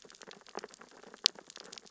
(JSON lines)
{"label": "biophony, sea urchins (Echinidae)", "recorder": "SoundTrap 600 or HydroMoth"}